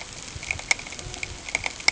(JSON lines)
{"label": "ambient", "recorder": "HydroMoth"}